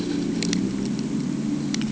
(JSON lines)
{"label": "ambient", "recorder": "HydroMoth"}